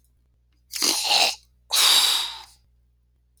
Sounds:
Throat clearing